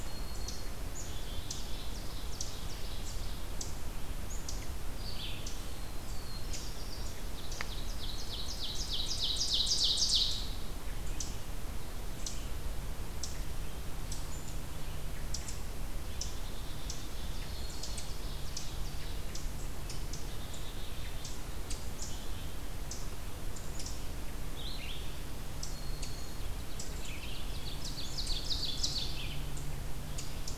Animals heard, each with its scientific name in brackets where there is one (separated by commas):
Red-eyed Vireo (Vireo olivaceus), Ovenbird (Seiurus aurocapilla), Black-throated Green Warbler (Setophaga virens), Black-capped Chickadee (Poecile atricapillus), Black-throated Blue Warbler (Setophaga caerulescens)